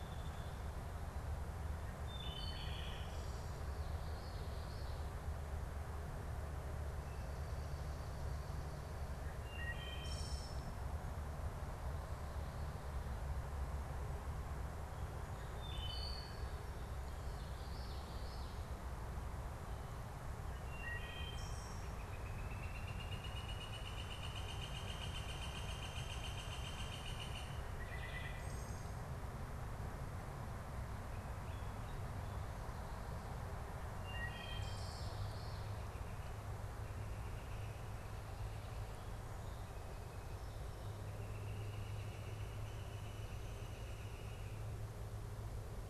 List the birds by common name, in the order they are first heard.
Wood Thrush, Common Yellowthroat, Northern Flicker